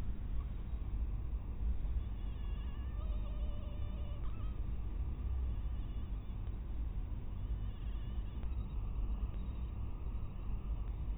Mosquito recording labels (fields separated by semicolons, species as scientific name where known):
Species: mosquito; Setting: cup